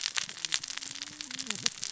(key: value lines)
label: biophony, cascading saw
recorder: SoundTrap 600 or HydroMoth